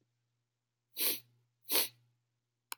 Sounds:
Sniff